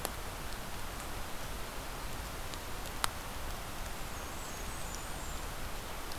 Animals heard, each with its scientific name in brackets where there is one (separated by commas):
Blackburnian Warbler (Setophaga fusca)